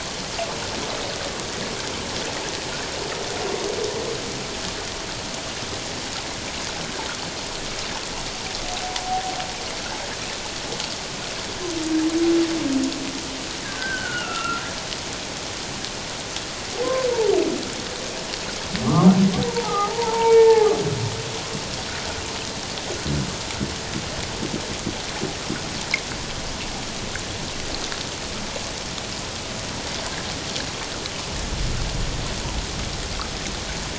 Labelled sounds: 13.6	14.6	humpback whale, 1.2 to 2.9 kHz
18.8	20.7	humpback whale, 0.78 to 2.3 kHz

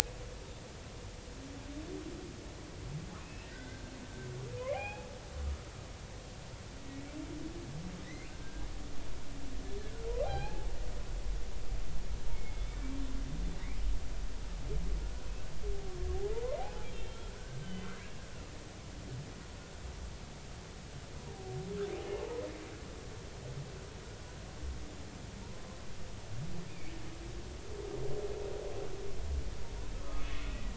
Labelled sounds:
3.2	3.9	humpback whale, 1.4 to 2.7 kHz
4.6	5.1	humpback whale, 0.80 to 2.6 kHz
8.0	8.7	humpback whale, 1.5 to 2.8 kHz
10.2	10.7	humpback whale, 0.80 to 4.3 kHz
12.3	12.7	humpback whale, 2.1 to 2.3 kHz
15.0	15.3	humpback whale, 1.4 to 1.6 kHz
16.8	18.2	humpback whale, 1.2 to 3.3 kHz
22.2	22.5	humpback whale, 0.83 to 1.1 kHz
29.9	30.5	humpback whale, 0.99 to 2.2 kHz

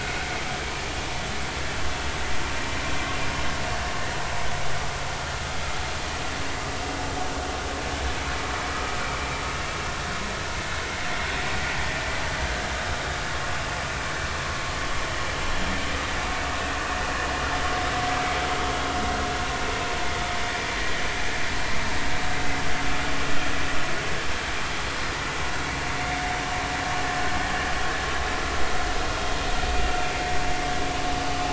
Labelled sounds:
8.7	8.9	vessel noise, 1.2 to 1.3 kHz

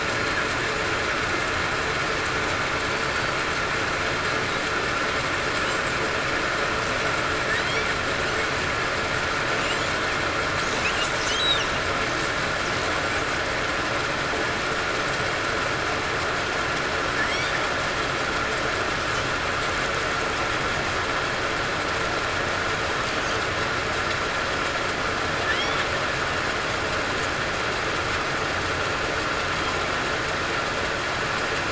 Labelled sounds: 2.9	3.4	killer whale, southern resident, 4.5 to 4.6 kHz

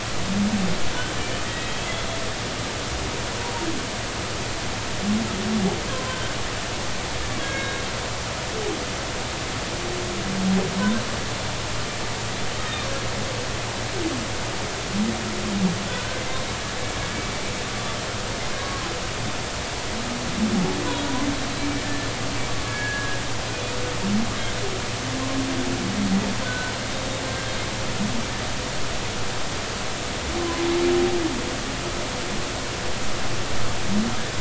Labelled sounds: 1.4	2.1	humpback whale, 1.9 to 3.4 kHz
5.9	6.3	humpback whale, 0.99 to 1.6 kHz
7.4	7.8	humpback whale, 1.6 to 2.2 kHz
15.9	16.2	humpback whale, 1.4 to 1.6 kHz
18.6	18.9	humpback whale, 0.93 to 1.1 kHz
21.8	23.2	humpback whale, 1.6 to 1.8 kHz
23.5	23.7	humpback whale, 2.4 to 2.5 kHz
26.4	26.7	humpback whale, 1.4 to 1.6 kHz
30.4	30.7	humpback whale, 0.96 to 1.1 kHz

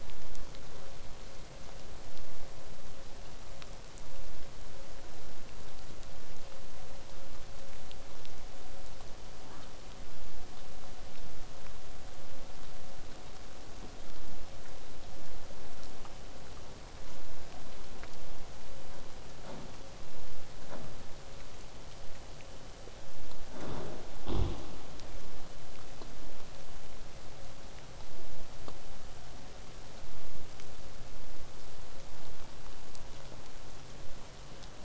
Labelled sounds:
6.5	9.2	killer whale, southern resident, 7.8 to 8.0 kHz
11.0	16.0	vessel noise, 0 to 8.0 kHz

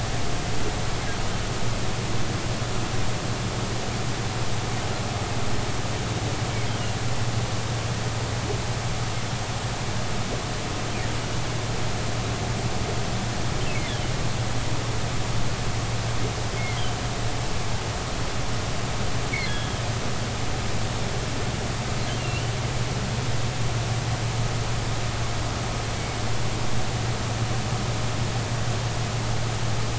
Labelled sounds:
16.6	16.8	humpback whale, 2.0 to 2.2 kHz
19.4	19.7	humpback whale, 1.6 to 3.6 kHz
22.2	22.5	humpback whale, 2.7 to 3.1 kHz

